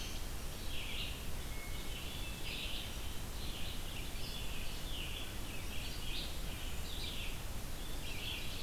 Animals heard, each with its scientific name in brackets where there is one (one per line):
Red-eyed Vireo (Vireo olivaceus)
Scarlet Tanager (Piranga olivacea)
Ovenbird (Seiurus aurocapilla)
Hermit Thrush (Catharus guttatus)